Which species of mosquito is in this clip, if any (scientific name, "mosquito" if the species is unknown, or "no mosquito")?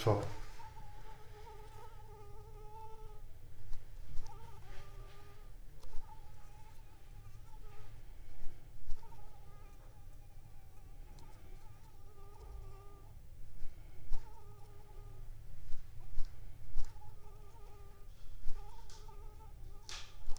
Anopheles arabiensis